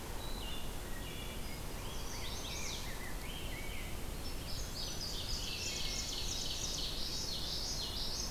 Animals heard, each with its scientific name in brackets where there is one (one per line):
Common Yellowthroat (Geothlypis trichas)
Rose-breasted Grosbeak (Pheucticus ludovicianus)
Wood Thrush (Hylocichla mustelina)
Indigo Bunting (Passerina cyanea)
Chestnut-sided Warbler (Setophaga pensylvanica)